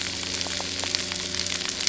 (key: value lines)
label: anthrophony, boat engine
recorder: SoundTrap 300